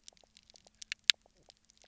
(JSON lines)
{"label": "biophony, knock croak", "recorder": "SoundTrap 300"}